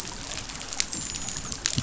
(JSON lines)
{"label": "biophony, dolphin", "recorder": "SoundTrap 500"}